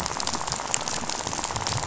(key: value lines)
label: biophony, rattle
recorder: SoundTrap 500